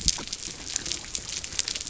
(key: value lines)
label: biophony
recorder: SoundTrap 300